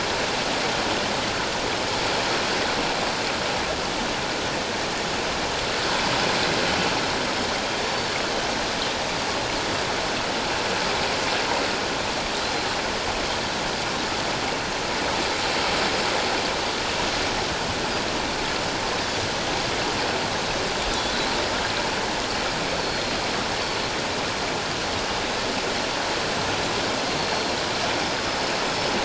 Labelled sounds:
12.4	12.7	Pacific white-sided dolphin, 4.0 to 4.2 kHz
22.8	23.2	Pacific white-sided dolphin, 4.2 to 4.4 kHz
27.2	27.6	Pacific white-sided dolphin, 4.1 to 4.6 kHz

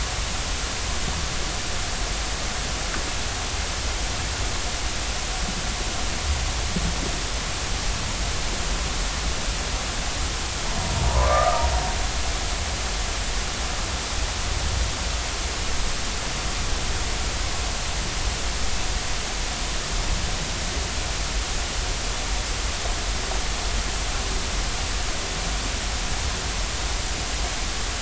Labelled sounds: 11.2	11.6	humpback whale, 1.1 to 1.4 kHz

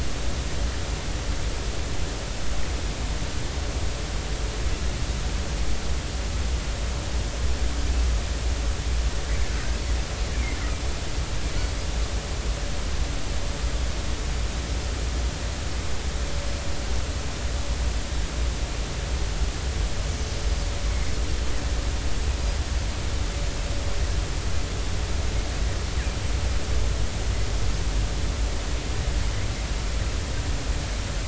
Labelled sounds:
10.3	10.6	Pacific white-sided dolphin, 2.0 to 2.4 kHz

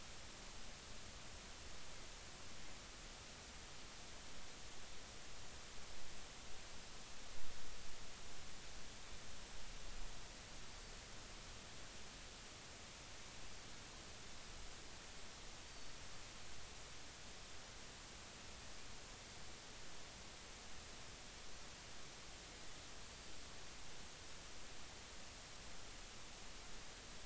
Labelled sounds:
15.6	16.0	Pacific white-sided dolphin, 4.4 to 4.7 kHz

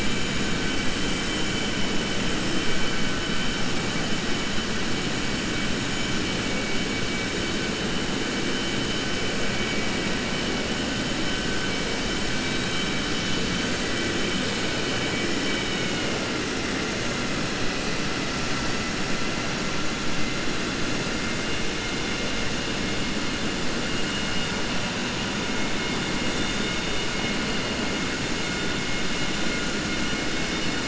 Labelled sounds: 15.4	16.2	vessel noise, 1.4 to 3.8 kHz

